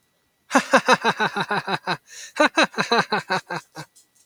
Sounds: Laughter